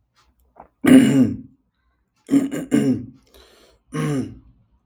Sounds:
Throat clearing